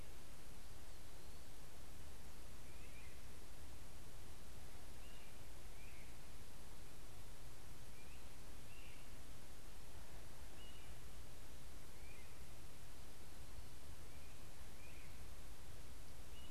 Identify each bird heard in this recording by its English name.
Great Crested Flycatcher